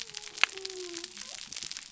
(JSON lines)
{"label": "biophony", "recorder": "SoundTrap 300"}